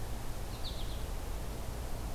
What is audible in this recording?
American Goldfinch